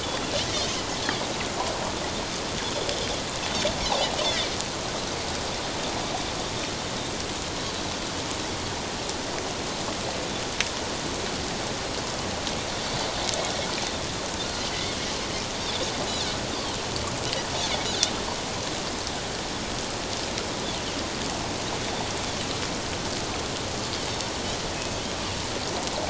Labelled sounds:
2.6	2.9	Pacific white-sided dolphin, 3.3 to 3.6 kHz
14.6	14.9	Pacific white-sided dolphin, 2.9 to 3.2 kHz

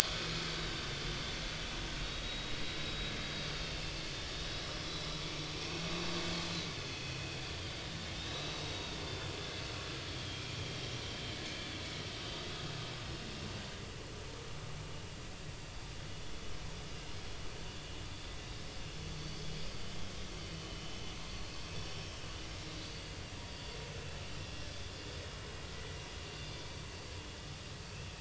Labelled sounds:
0.0	0.3	vessel noise, 3.2 to 3.5 kHz
2.0	3.5	vessel noise, 3.6 to 4.8 kHz
4.8	5.8	vessel noise, 2.3 to 4.1 kHz
6.3	6.7	vessel noise, 3.8 to 4.4 kHz
8.2	9.0	vessel noise, 3.6 to 3.9 kHz
10.1	10.5	vessel noise, 3.1 to 5.2 kHz
20.6	21.0	vessel noise, 2.9 to 3.1 kHz
21.8	22.1	vessel noise, 5.4 to 5.6 kHz
25.7	26.0	vessel noise, 1.95 to 2.05 kHz

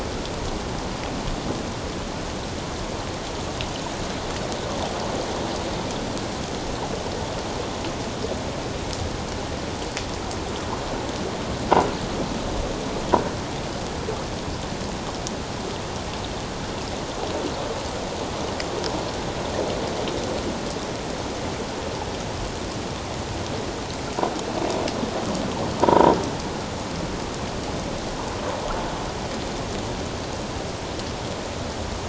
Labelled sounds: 25.8	26.1	croaking sound likely from a nearby submerged object, 0.88 to 1.0 kHz

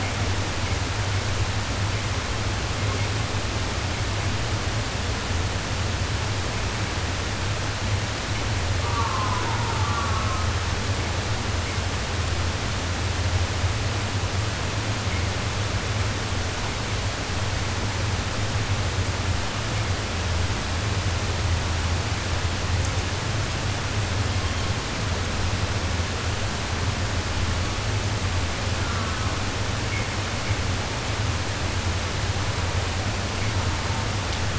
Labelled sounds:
8.7	10.6	killer whale, southern resident, 0.43 to 1.8 kHz
24.1	24.9	killer whale, southern resident, 0.71 to 4.8 kHz
27.3	28.0	killer whale, southern resident, 0.56 to 4.8 kHz
28.7	29.5	killer whale, southern resident, 0.73 to 2.0 kHz
33.4	34.1	killer whale, southern resident, 0.57 to 1.5 kHz

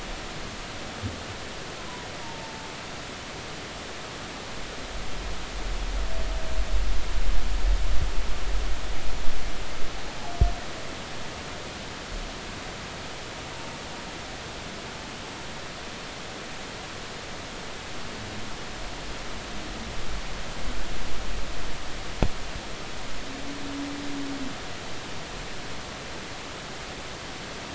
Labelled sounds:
2.2	2.6	humpback whale, 0.86 to 0.96 kHz

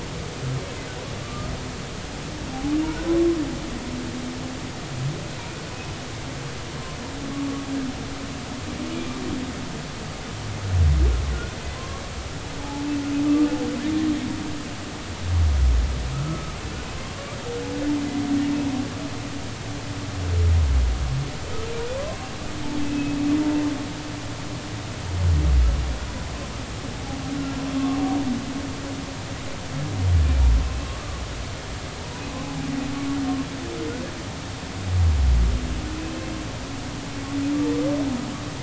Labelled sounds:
1.2	1.5	humpback whale, 1.1 to 1.3 kHz
11.8	12.8	humpback whale, 0.80 to 1.2 kHz
16.1	16.5	humpback whale, 1.2 to 1.4 kHz
22.8	23.2	humpback whale, 2.5 to 2.7 kHz

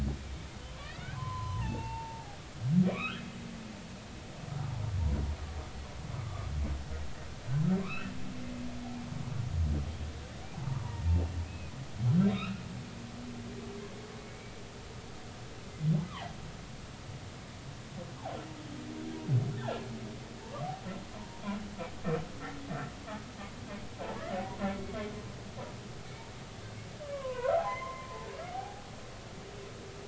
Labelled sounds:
0.8	2.4	humpback whale, 0.80 to 4.1 kHz
2.9	3.2	humpback whale, 0.99 to 3.4 kHz
6.2	6.5	humpback whale, 1.1 to 1.3 kHz
7.8	8.1	humpback whale, 0.99 to 2.8 kHz
10.5	11.1	humpback whale, 0.80 to 2.0 kHz
11.5	11.7	humpback whale, 2.4 to 2.6 kHz
12.3	12.6	humpback whale, 1.2 to 2.8 kHz
14.2	14.6	humpback whale, 2.2 to 2.4 kHz
16.0	16.3	humpback whale, 0.80 to 2.1 kHz
19.6	19.9	humpback whale, 1.5 to 1.9 kHz
24.6	25.0	humpback whale, 2.1 to 2.2 kHz
27.1	28.8	humpback whale, 0.80 to 3.2 kHz

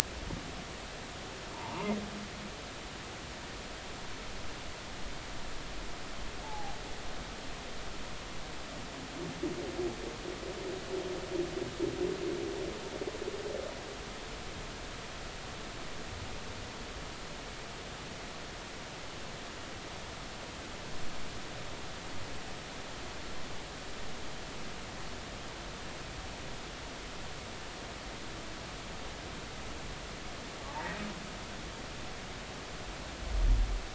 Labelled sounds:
1.5	2.0	humpback whale, 0.83 to 1.2 kHz
6.4	6.8	humpback whale, 0.80 to 0.93 kHz

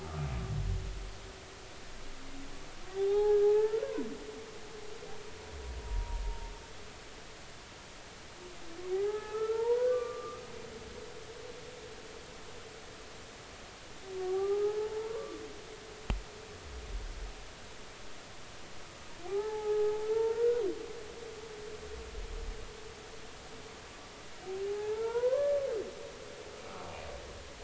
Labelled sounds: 3.0	3.9	humpback whale, 0.80 to 1.7 kHz
5.8	6.5	humpback whale, 0.86 to 0.99 kHz
8.9	10.4	humpback whale, 0.80 to 1.8 kHz
14.2	16.2	humpback whale, 0.80 to 1.3 kHz
19.2	20.6	humpback whale, 0.80 to 1.5 kHz
24.7	25.6	humpback whale, 0.80 to 2.3 kHz

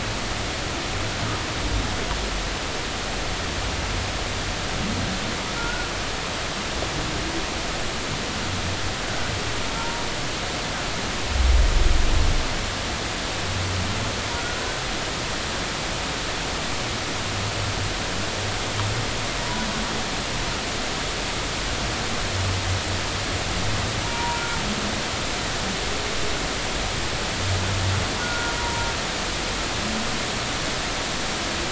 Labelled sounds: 5.6	5.9	humpback whale, 1.3 to 1.5 kHz
9.8	10.0	humpback whale, 0.90 to 0.99 kHz
14.4	14.6	humpback whale, 1.3 to 1.5 kHz
19.4	19.7	humpback whale, 0.93 to 1.0 kHz
24.0	24.4	humpback whale, 0.90 to 1.0 kHz
28.2	28.9	humpback whale, 0.90 to 1.5 kHz

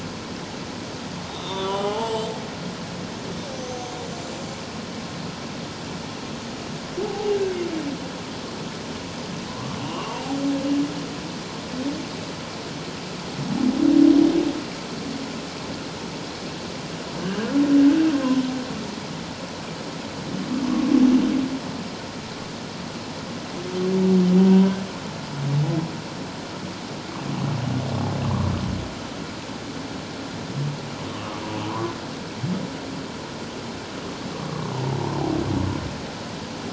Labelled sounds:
1.3	2.3	humpback whale, 0.78 to 8.0 kHz
7.0	7.4	humpback whale, 0.78 to 0.88 kHz
9.5	10.1	humpback whale, 0.94 to 3.0 kHz
20.6	20.9	humpback whale, 1.0 to 1.2 kHz
24.5	24.8	humpback whale, 0.91 to 1.0 kHz
28.2	28.5	humpback whale, 0.97 to 1.2 kHz
31.1	31.9	humpback whale, 0.91 to 1.3 kHz

